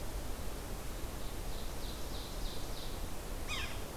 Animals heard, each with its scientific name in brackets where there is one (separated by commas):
Ovenbird (Seiurus aurocapilla), Yellow-bellied Sapsucker (Sphyrapicus varius)